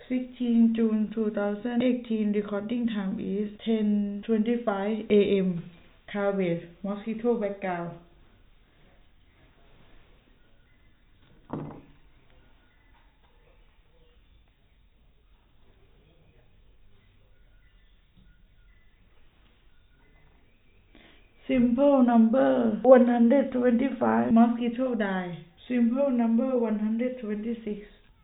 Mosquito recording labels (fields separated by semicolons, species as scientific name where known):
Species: no mosquito; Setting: cup